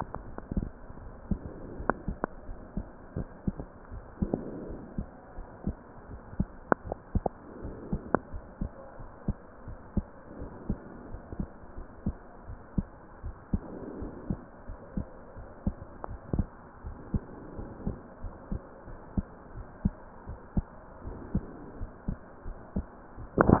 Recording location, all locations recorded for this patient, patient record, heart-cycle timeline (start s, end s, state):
pulmonary valve (PV)
aortic valve (AV)+pulmonary valve (PV)+tricuspid valve (TV)+mitral valve (MV)
#Age: Child
#Sex: Male
#Height: 121.0 cm
#Weight: 26.1 kg
#Pregnancy status: False
#Murmur: Absent
#Murmur locations: nan
#Most audible location: nan
#Systolic murmur timing: nan
#Systolic murmur shape: nan
#Systolic murmur grading: nan
#Systolic murmur pitch: nan
#Systolic murmur quality: nan
#Diastolic murmur timing: nan
#Diastolic murmur shape: nan
#Diastolic murmur grading: nan
#Diastolic murmur pitch: nan
#Diastolic murmur quality: nan
#Outcome: Abnormal
#Campaign: 2015 screening campaign
0.00	1.42	unannotated
1.42	1.76	diastole
1.76	1.88	S1
1.88	2.06	systole
2.06	2.18	S2
2.18	2.48	diastole
2.48	2.58	S1
2.58	2.76	systole
2.76	2.88	S2
2.88	3.16	diastole
3.16	3.28	S1
3.28	3.46	systole
3.46	3.56	S2
3.56	3.92	diastole
3.92	4.04	S1
4.04	4.20	systole
4.20	4.34	S2
4.34	4.68	diastole
4.68	4.82	S1
4.82	4.96	systole
4.96	5.08	S2
5.08	5.38	diastole
5.38	5.46	S1
5.46	5.64	systole
5.64	5.78	S2
5.78	6.10	diastole
6.10	6.20	S1
6.20	6.34	systole
6.34	6.48	S2
6.48	6.86	diastole
6.86	6.98	S1
6.98	7.14	systole
7.14	7.30	S2
7.30	7.62	diastole
7.62	7.76	S1
7.76	7.90	systole
7.90	8.02	S2
8.02	8.32	diastole
8.32	8.44	S1
8.44	8.60	systole
8.60	8.70	S2
8.70	9.00	diastole
9.00	9.08	S1
9.08	9.24	systole
9.24	9.38	S2
9.38	9.66	diastole
9.66	9.78	S1
9.78	9.92	systole
9.92	10.06	S2
10.06	10.40	diastole
10.40	10.52	S1
10.52	10.68	systole
10.68	10.80	S2
10.80	11.10	diastole
11.10	11.20	S1
11.20	11.38	systole
11.38	11.48	S2
11.48	11.78	diastole
11.78	11.86	S1
11.86	12.04	systole
12.04	12.18	S2
12.18	12.48	diastole
12.48	12.58	S1
12.58	12.74	systole
12.74	12.86	S2
12.86	13.22	diastole
13.22	13.34	S1
13.34	13.50	systole
13.50	13.64	S2
13.64	13.98	diastole
13.98	14.12	S1
14.12	14.28	systole
14.28	14.40	S2
14.40	14.68	diastole
14.68	14.78	S1
14.78	14.96	systole
14.96	15.08	S2
15.08	15.38	diastole
15.38	15.48	S1
15.48	15.62	systole
15.62	15.76	S2
15.76	16.08	diastole
16.08	16.20	S1
16.20	16.36	systole
16.36	16.52	S2
16.52	16.86	diastole
16.86	16.98	S1
16.98	17.10	systole
17.10	17.22	S2
17.22	17.56	diastole
17.56	17.70	S1
17.70	17.84	systole
17.84	17.98	S2
17.98	18.24	diastole
18.24	18.34	S1
18.34	18.50	systole
18.50	18.60	S2
18.60	18.90	diastole
18.90	18.98	S1
18.98	19.14	systole
19.14	19.28	S2
19.28	19.56	diastole
19.56	19.66	S1
19.66	19.84	systole
19.84	19.94	S2
19.94	20.28	diastole
20.28	20.40	S1
20.40	20.58	systole
20.58	20.72	S2
20.72	21.06	diastole
21.06	21.18	S1
21.18	21.32	systole
21.32	21.46	S2
21.46	21.78	diastole
21.78	21.90	S1
21.90	22.04	systole
22.04	22.18	S2
22.18	22.46	diastole
22.46	22.56	S1
22.56	22.74	systole
22.74	22.88	S2
22.88	23.20	diastole
23.20	23.60	unannotated